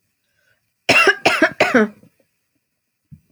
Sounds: Cough